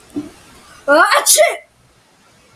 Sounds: Sneeze